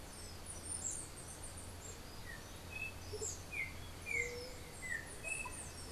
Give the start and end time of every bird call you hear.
0.0s-5.9s: Andean Motmot (Momotus aequatorialis)
0.0s-5.9s: Chestnut-capped Brushfinch (Arremon brunneinucha)
2.1s-5.9s: Yellow-backed Oriole (Icterus chrysater)
4.1s-4.7s: White-tipped Dove (Leptotila verreauxi)

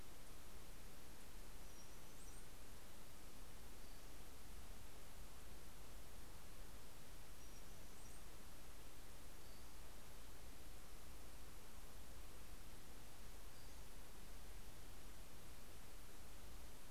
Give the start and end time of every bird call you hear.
0.0s-9.0s: Brown-headed Cowbird (Molothrus ater)
9.3s-10.2s: Pacific-slope Flycatcher (Empidonax difficilis)
12.9s-14.1s: Pacific-slope Flycatcher (Empidonax difficilis)

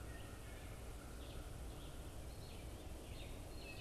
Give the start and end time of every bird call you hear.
0.0s-1.9s: American Crow (Corvus brachyrhynchos)
0.0s-3.8s: Red-eyed Vireo (Vireo olivaceus)
0.0s-3.8s: Wood Thrush (Hylocichla mustelina)

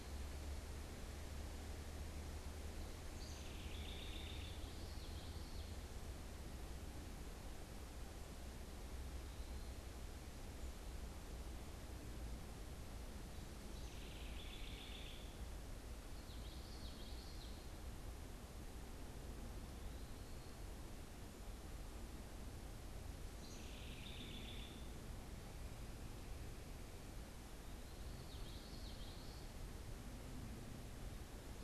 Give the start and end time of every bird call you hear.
2.9s-4.6s: House Wren (Troglodytes aedon)
4.1s-5.8s: Common Yellowthroat (Geothlypis trichas)
13.5s-15.3s: House Wren (Troglodytes aedon)
15.9s-17.7s: Common Yellowthroat (Geothlypis trichas)
23.2s-24.8s: House Wren (Troglodytes aedon)
27.9s-29.6s: Common Yellowthroat (Geothlypis trichas)

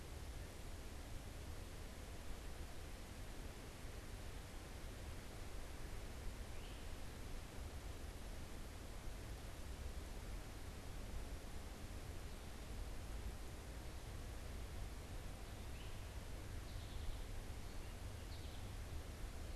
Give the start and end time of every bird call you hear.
6.4s-19.6s: Great Crested Flycatcher (Myiarchus crinitus)
16.4s-19.6s: American Goldfinch (Spinus tristis)

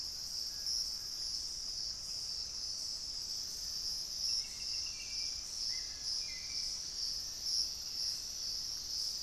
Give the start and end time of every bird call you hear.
0.3s-1.6s: Little Tinamou (Crypturellus soui)
4.1s-7.0s: Hauxwell's Thrush (Turdus hauxwelli)
6.5s-8.5s: Gray Antbird (Cercomacra cinerascens)

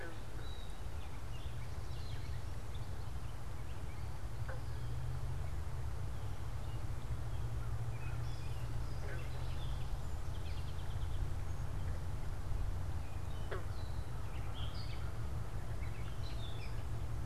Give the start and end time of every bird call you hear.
0.0s-17.3s: Gray Catbird (Dumetella carolinensis)
9.9s-11.9s: Song Sparrow (Melospiza melodia)

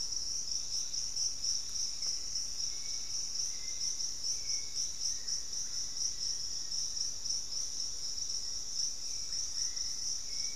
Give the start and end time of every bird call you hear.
0.3s-4.3s: Pygmy Antwren (Myrmotherula brachyura)
4.7s-10.6s: Black-faced Antthrush (Formicarius analis)
5.4s-10.6s: Russet-backed Oropendola (Psarocolius angustifrons)
9.1s-10.6s: Hauxwell's Thrush (Turdus hauxwelli)

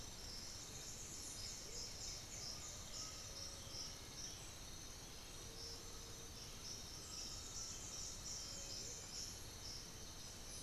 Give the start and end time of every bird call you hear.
0.0s-2.6s: White-winged Becard (Pachyramphus polychopterus)
2.1s-10.6s: Black-billed Thrush (Turdus ignobilis)
2.2s-8.8s: Undulated Tinamou (Crypturellus undulatus)

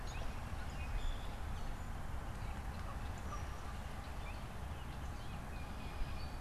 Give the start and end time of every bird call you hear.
0.6s-1.5s: Common Grackle (Quiscalus quiscula)
1.9s-5.9s: Northern Flicker (Colaptes auratus)
5.1s-6.4s: Tufted Titmouse (Baeolophus bicolor)

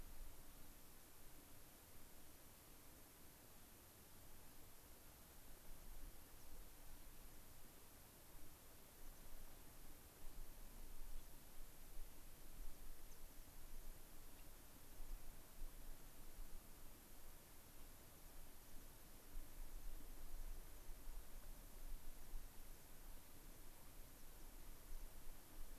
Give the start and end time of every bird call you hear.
6.3s-6.5s: American Pipit (Anthus rubescens)
7.3s-7.6s: American Pipit (Anthus rubescens)
8.9s-9.2s: American Pipit (Anthus rubescens)
11.1s-11.3s: unidentified bird
12.5s-14.0s: American Pipit (Anthus rubescens)
14.3s-14.5s: unidentified bird
18.5s-19.0s: American Pipit (Anthus rubescens)
20.7s-22.3s: American Pipit (Anthus rubescens)

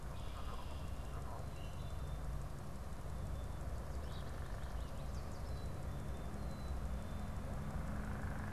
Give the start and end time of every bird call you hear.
0.0s-1.4s: Red-winged Blackbird (Agelaius phoeniceus)
1.5s-2.5s: Common Grackle (Quiscalus quiscula)
6.2s-7.4s: Black-capped Chickadee (Poecile atricapillus)

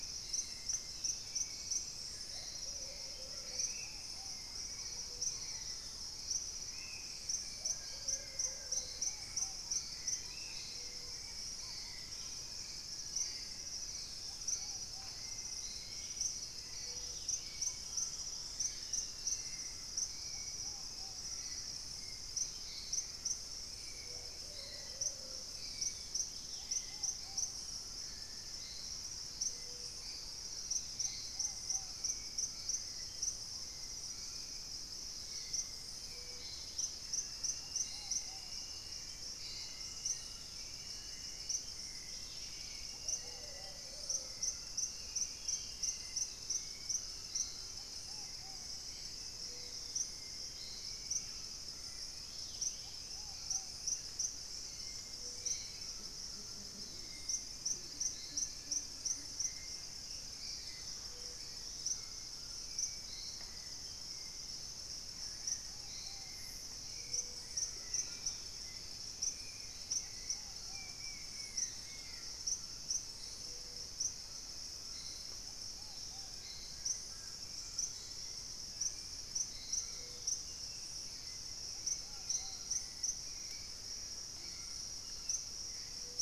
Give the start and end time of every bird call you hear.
0.0s-9.2s: Plumbeous Pigeon (Patagioenas plumbea)
0.0s-10.8s: Spot-winged Antshrike (Pygiptila stellaris)
0.0s-86.2s: Hauxwell's Thrush (Turdus hauxwelli)
0.0s-86.2s: Ruddy Pigeon (Patagioenas subvinacea)
7.6s-8.9s: Collared Trogon (Trogon collaris)
9.1s-21.4s: Purple-throated Fruitcrow (Querula purpurata)
13.1s-19.7s: unidentified bird
13.9s-17.8s: Dusky-capped Greenlet (Pachysylvia hypoxantha)
16.6s-19.2s: Dusky-throated Antshrike (Thamnomanes ardesiacus)
21.1s-21.7s: unidentified bird
22.1s-27.0s: Gray Antwren (Myrmotherula menetriesii)
24.2s-25.6s: Plumbeous Pigeon (Patagioenas plumbea)
26.1s-27.2s: Dusky-capped Greenlet (Pachysylvia hypoxantha)
31.7s-32.9s: Collared Trogon (Trogon collaris)
36.0s-37.1s: Dusky-capped Greenlet (Pachysylvia hypoxantha)
39.3s-40.7s: Screaming Piha (Lipaugus vociferans)
41.7s-42.9s: Dusky-capped Greenlet (Pachysylvia hypoxantha)
42.9s-44.5s: Plumbeous Pigeon (Patagioenas plumbea)
45.2s-49.5s: unidentified bird
50.8s-52.1s: unidentified bird
51.1s-53.8s: Screaming Piha (Lipaugus vociferans)
52.0s-53.2s: Dusky-capped Greenlet (Pachysylvia hypoxantha)
52.8s-56.2s: Plain-throated Antwren (Isleria hauxwelli)
57.4s-60.5s: Buff-throated Woodcreeper (Xiphorhynchus guttatus)
61.3s-62.4s: unidentified bird
69.2s-69.9s: Spot-winged Antshrike (Pygiptila stellaris)
70.6s-72.4s: unidentified bird
76.3s-77.4s: Collared Trogon (Trogon collaris)

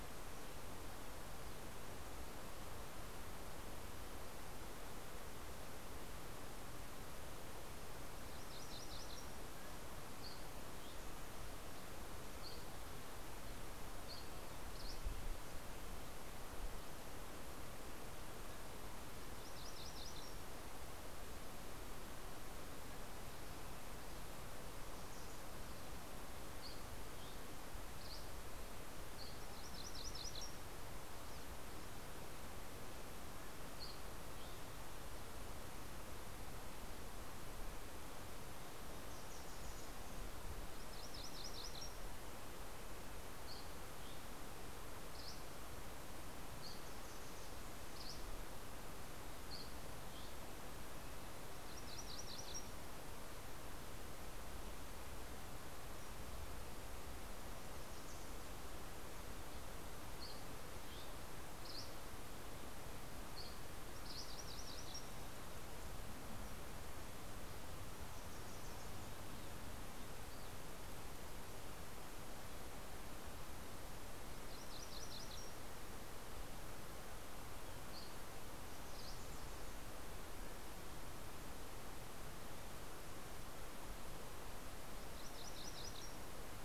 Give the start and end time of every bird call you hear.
8.2s-9.7s: MacGillivray's Warbler (Geothlypis tolmiei)
9.7s-16.5s: Dusky Flycatcher (Empidonax oberholseri)
18.8s-21.3s: MacGillivray's Warbler (Geothlypis tolmiei)
26.5s-29.5s: Dusky Flycatcher (Empidonax oberholseri)
29.0s-31.1s: MacGillivray's Warbler (Geothlypis tolmiei)
33.3s-35.2s: Dusky Flycatcher (Empidonax oberholseri)
39.0s-40.5s: Wilson's Warbler (Cardellina pusilla)
40.4s-42.3s: MacGillivray's Warbler (Geothlypis tolmiei)
43.1s-46.8s: Dusky Flycatcher (Empidonax oberholseri)
47.9s-50.7s: Dusky Flycatcher (Empidonax oberholseri)
51.3s-53.3s: MacGillivray's Warbler (Geothlypis tolmiei)
59.9s-63.6s: Dusky Flycatcher (Empidonax oberholseri)
63.7s-65.6s: MacGillivray's Warbler (Geothlypis tolmiei)
74.4s-76.3s: MacGillivray's Warbler (Geothlypis tolmiei)
77.4s-79.6s: Dusky Flycatcher (Empidonax oberholseri)
84.4s-86.6s: MacGillivray's Warbler (Geothlypis tolmiei)

